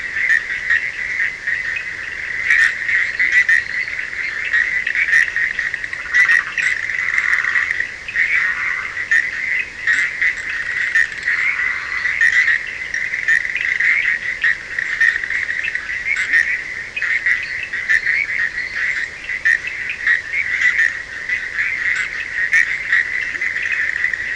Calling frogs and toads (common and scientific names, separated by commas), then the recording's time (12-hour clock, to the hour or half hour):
Bischoff's tree frog (Boana bischoffi), Cochran's lime tree frog (Sphaenorhynchus surdus), fine-lined tree frog (Boana leptolineata), Leptodactylus latrans, Burmeister's tree frog (Boana prasina)
2:30am